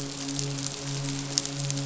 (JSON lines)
{"label": "biophony, midshipman", "recorder": "SoundTrap 500"}